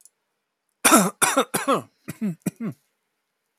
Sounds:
Cough